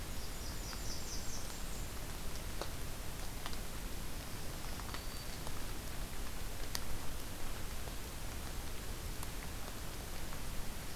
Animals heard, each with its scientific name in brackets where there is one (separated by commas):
Blackburnian Warbler (Setophaga fusca), Black-throated Green Warbler (Setophaga virens)